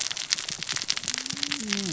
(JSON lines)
{"label": "biophony, cascading saw", "recorder": "SoundTrap 600 or HydroMoth"}